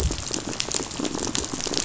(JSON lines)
{"label": "biophony, rattle", "recorder": "SoundTrap 500"}